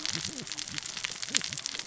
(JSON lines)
{"label": "biophony, cascading saw", "recorder": "SoundTrap 600 or HydroMoth"}